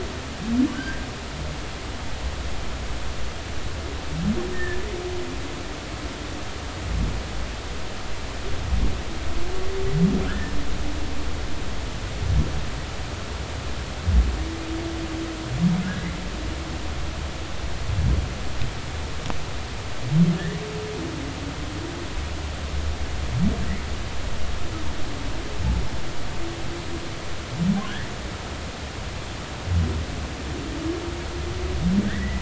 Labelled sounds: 0.7	1.1	humpback whale, 1.4 to 1.7 kHz
5.5	5.8	humpback whale, 1.7 to 1.9 kHz
10.2	10.5	humpback whale, 1.3 to 1.9 kHz
15.8	16.1	humpback whale, 1.4 to 1.7 kHz
27.8	28.1	humpback whale, 1.4 to 2.0 kHz
32.1	32.4	humpback whale, 1.5 to 2.1 kHz

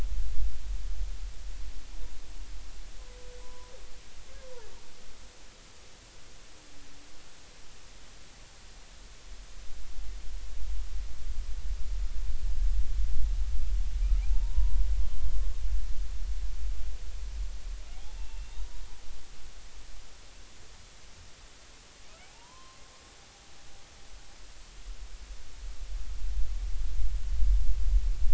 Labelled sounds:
3.4	3.7	humpback whale, 0.93 to 1.1 kHz
14.2	14.8	humpback whale, 0.80 to 1.1 kHz
18.1	18.8	humpback whale, 0.90 to 3.8 kHz
22.3	22.8	humpback whale, 0.80 to 1.1 kHz

